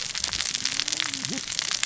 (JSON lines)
{"label": "biophony, cascading saw", "recorder": "SoundTrap 600 or HydroMoth"}